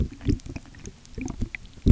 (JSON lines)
{"label": "geophony, waves", "recorder": "SoundTrap 300"}